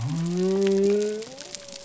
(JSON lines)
{"label": "biophony", "recorder": "SoundTrap 300"}